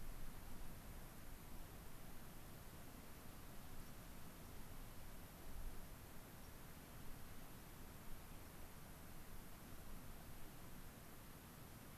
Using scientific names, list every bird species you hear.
Zonotrichia leucophrys